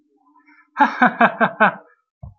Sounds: Laughter